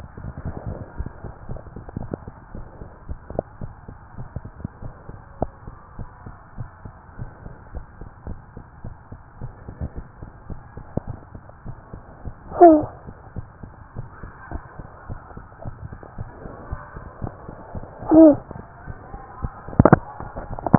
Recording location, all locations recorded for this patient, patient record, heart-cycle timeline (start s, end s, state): tricuspid valve (TV)
aortic valve (AV)+pulmonary valve (PV)+tricuspid valve (TV)+mitral valve (MV)
#Age: Child
#Sex: Male
#Height: 109.0 cm
#Weight: 25.5 kg
#Pregnancy status: False
#Murmur: Absent
#Murmur locations: nan
#Most audible location: nan
#Systolic murmur timing: nan
#Systolic murmur shape: nan
#Systolic murmur grading: nan
#Systolic murmur pitch: nan
#Systolic murmur quality: nan
#Diastolic murmur timing: nan
#Diastolic murmur shape: nan
#Diastolic murmur grading: nan
#Diastolic murmur pitch: nan
#Diastolic murmur quality: nan
#Outcome: Normal
#Campaign: 2015 screening campaign
0.00	4.78	unannotated
4.78	4.94	S1
4.94	5.06	systole
5.06	5.16	S2
5.16	5.38	diastole
5.38	5.52	S1
5.52	5.64	systole
5.64	5.74	S2
5.74	5.98	diastole
5.98	6.08	S1
6.08	6.22	systole
6.22	6.34	S2
6.34	6.58	diastole
6.58	6.72	S1
6.72	6.84	systole
6.84	6.94	S2
6.94	7.18	diastole
7.18	7.32	S1
7.32	7.40	systole
7.40	7.52	S2
7.52	7.74	diastole
7.74	7.88	S1
7.88	8.00	systole
8.00	8.08	S2
8.08	8.25	diastole
8.25	8.42	S1
8.42	8.54	systole
8.54	8.64	S2
8.64	8.83	diastole
8.83	8.98	S1
8.98	9.10	systole
9.10	9.20	S2
9.20	9.42	diastole
9.42	9.54	S1
9.54	9.64	systole
9.64	9.74	S2
9.74	9.96	diastole
9.96	10.10	S1
10.10	10.20	systole
10.20	10.28	S2
10.28	10.47	diastole
10.47	10.59	S1
10.59	10.75	systole
10.75	10.83	S2
10.83	11.05	diastole
11.05	11.16	S1
11.16	11.32	systole
11.32	11.42	S2
11.42	11.64	diastole
11.64	11.74	S1
11.74	11.92	systole
11.92	12.02	S2
12.02	12.22	diastole
12.22	12.34	S1
12.34	13.34	unannotated
13.34	13.46	S1
13.46	13.60	systole
13.60	13.69	S2
13.69	13.96	diastole
13.96	14.10	S1
14.10	14.18	systole
14.18	14.30	S2
14.30	14.52	diastole
14.52	14.62	S1
14.62	14.77	systole
14.77	14.86	S2
14.86	20.78	unannotated